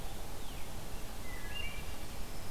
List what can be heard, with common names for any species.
Wood Thrush, Black-throated Green Warbler